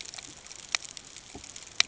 {"label": "ambient", "recorder": "HydroMoth"}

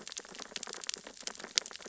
{"label": "biophony, sea urchins (Echinidae)", "recorder": "SoundTrap 600 or HydroMoth"}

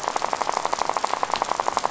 {"label": "biophony, rattle", "recorder": "SoundTrap 500"}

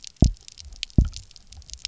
{"label": "biophony, double pulse", "recorder": "SoundTrap 300"}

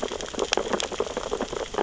{"label": "biophony, sea urchins (Echinidae)", "recorder": "SoundTrap 600 or HydroMoth"}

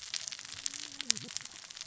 {"label": "biophony, cascading saw", "recorder": "SoundTrap 600 or HydroMoth"}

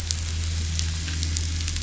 {"label": "anthrophony, boat engine", "recorder": "SoundTrap 500"}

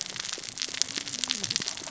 {"label": "biophony, cascading saw", "recorder": "SoundTrap 600 or HydroMoth"}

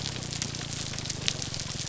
{"label": "biophony, grouper groan", "recorder": "SoundTrap 300"}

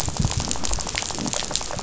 {"label": "biophony, rattle", "recorder": "SoundTrap 500"}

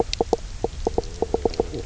{"label": "biophony, knock croak", "recorder": "SoundTrap 300"}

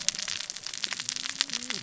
{"label": "biophony, cascading saw", "recorder": "SoundTrap 600 or HydroMoth"}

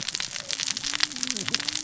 {"label": "biophony, cascading saw", "recorder": "SoundTrap 600 or HydroMoth"}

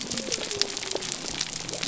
{"label": "biophony", "recorder": "SoundTrap 300"}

